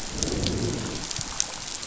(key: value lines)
label: biophony, growl
recorder: SoundTrap 500